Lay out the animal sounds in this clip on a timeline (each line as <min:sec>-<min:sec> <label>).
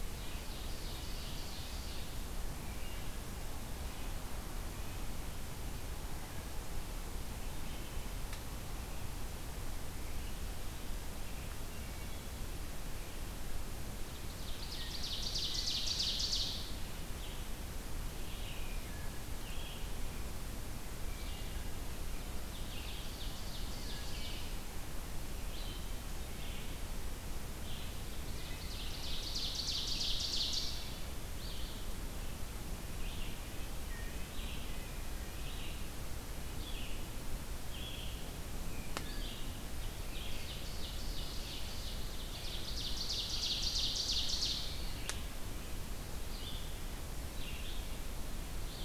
0:00.0-0:02.1 Ovenbird (Seiurus aurocapilla)
0:11.7-0:12.3 Wood Thrush (Hylocichla mustelina)
0:14.1-0:16.7 Ovenbird (Seiurus aurocapilla)
0:17.1-0:27.8 Red-eyed Vireo (Vireo olivaceus)
0:22.3-0:24.6 Ovenbird (Seiurus aurocapilla)
0:28.2-0:31.0 Ovenbird (Seiurus aurocapilla)
0:31.2-0:48.9 Red-eyed Vireo (Vireo olivaceus)
0:39.7-0:44.8 Ovenbird (Seiurus aurocapilla)